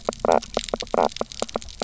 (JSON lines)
{"label": "biophony, knock croak", "recorder": "SoundTrap 300"}